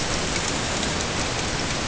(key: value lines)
label: ambient
recorder: HydroMoth